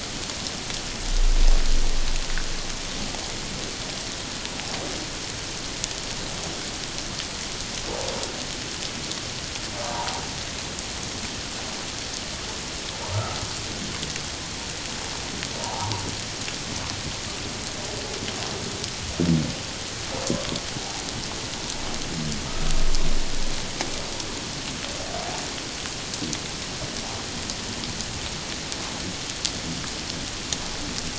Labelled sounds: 9.8	10.2	humpback whale, 0.78 to 1.0 kHz
15.6	15.9	humpback whale, 0.78 to 1.2 kHz

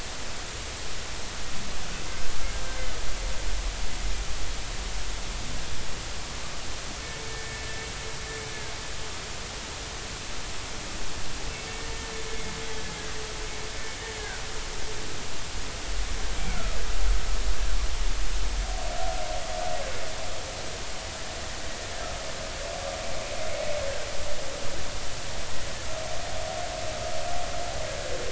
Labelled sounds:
7.3	7.7	humpback whale, 1.7 to 1.9 kHz
16.4	16.8	humpback whale, 1.2 to 2.4 kHz

